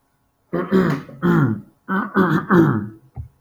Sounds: Throat clearing